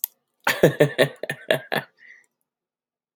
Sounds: Laughter